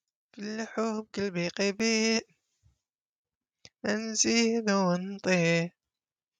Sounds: Sigh